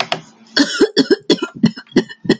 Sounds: Cough